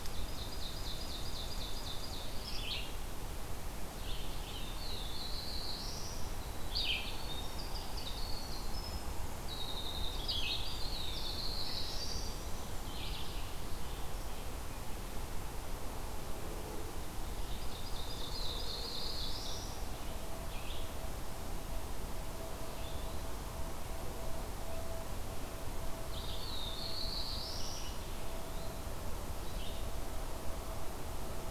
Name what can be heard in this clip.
Ovenbird, Red-eyed Vireo, Black-throated Blue Warbler, Winter Wren